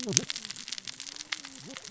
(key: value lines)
label: biophony, cascading saw
recorder: SoundTrap 600 or HydroMoth